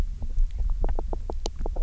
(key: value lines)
label: biophony, knock croak
recorder: SoundTrap 300